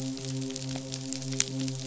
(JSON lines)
{"label": "biophony, midshipman", "recorder": "SoundTrap 500"}